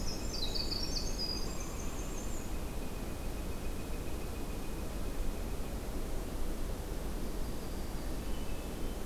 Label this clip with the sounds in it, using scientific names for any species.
Troglodytes hiemalis, Colaptes auratus, Dryobates villosus, Setophaga coronata, Catharus guttatus